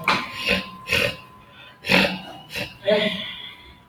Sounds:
Throat clearing